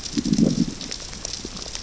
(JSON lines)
{"label": "biophony, growl", "recorder": "SoundTrap 600 or HydroMoth"}